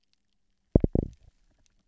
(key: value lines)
label: biophony, double pulse
recorder: SoundTrap 300